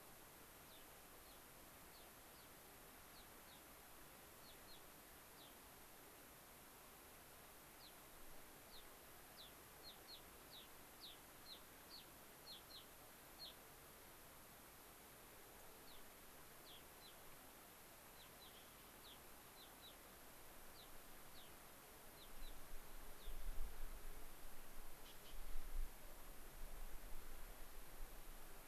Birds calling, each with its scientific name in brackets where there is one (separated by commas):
Gray-crowned Rosy-Finch (Leucosticte tephrocotis)